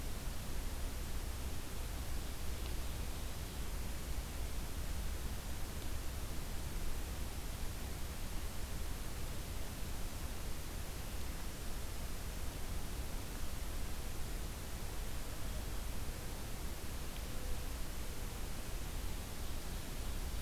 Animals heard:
forest ambience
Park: Acadia National Park